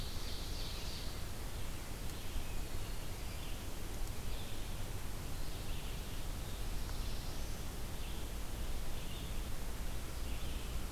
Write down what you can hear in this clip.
Ovenbird, Red-eyed Vireo